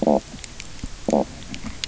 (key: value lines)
label: biophony, stridulation
recorder: SoundTrap 300